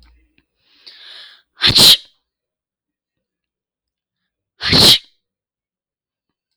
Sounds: Sneeze